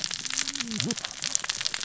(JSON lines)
{"label": "biophony, cascading saw", "recorder": "SoundTrap 600 or HydroMoth"}